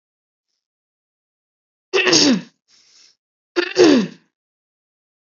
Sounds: Throat clearing